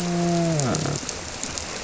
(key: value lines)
label: biophony, grouper
recorder: SoundTrap 300